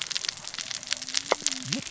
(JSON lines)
{"label": "biophony, cascading saw", "recorder": "SoundTrap 600 or HydroMoth"}